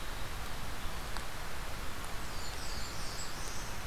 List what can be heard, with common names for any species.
Blackburnian Warbler, Black-throated Blue Warbler